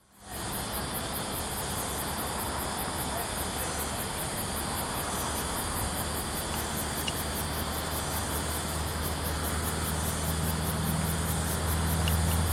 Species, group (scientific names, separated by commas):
Clinopsalta autumna, Cicadidae